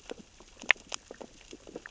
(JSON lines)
{"label": "biophony, sea urchins (Echinidae)", "recorder": "SoundTrap 600 or HydroMoth"}